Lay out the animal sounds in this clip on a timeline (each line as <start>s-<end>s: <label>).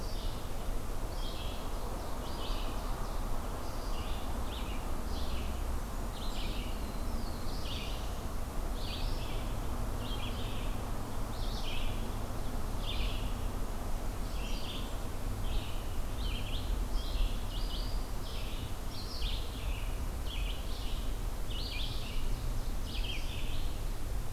0.0s-24.3s: Red-eyed Vireo (Vireo olivaceus)
1.6s-3.1s: Ovenbird (Seiurus aurocapilla)
6.6s-8.2s: Black-throated Blue Warbler (Setophaga caerulescens)
21.2s-23.4s: Ovenbird (Seiurus aurocapilla)